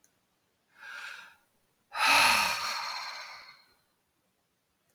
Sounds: Sigh